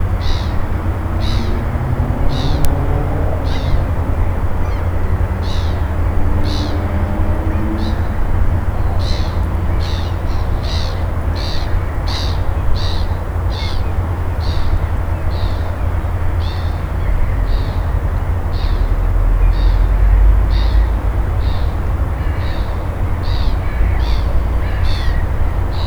Are people yelling at one another?
no